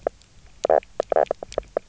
{"label": "biophony, knock croak", "recorder": "SoundTrap 300"}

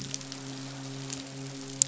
{"label": "biophony, midshipman", "recorder": "SoundTrap 500"}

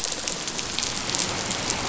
{"label": "biophony", "recorder": "SoundTrap 500"}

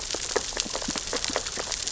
{"label": "biophony, sea urchins (Echinidae)", "recorder": "SoundTrap 600 or HydroMoth"}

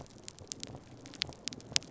{"label": "biophony", "recorder": "SoundTrap 300"}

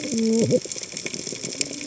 {"label": "biophony, cascading saw", "recorder": "HydroMoth"}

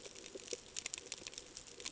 {"label": "ambient", "recorder": "HydroMoth"}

